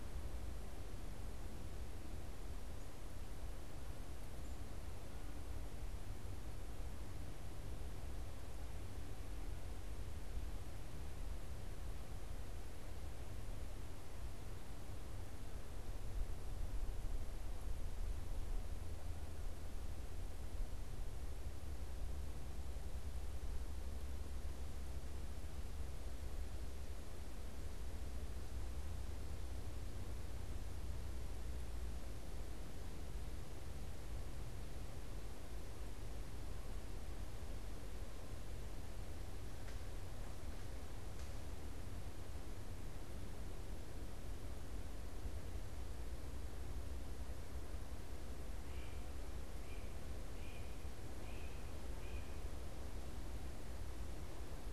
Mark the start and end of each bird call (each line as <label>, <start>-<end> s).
Great Crested Flycatcher (Myiarchus crinitus), 48.5-52.5 s